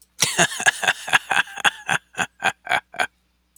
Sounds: Laughter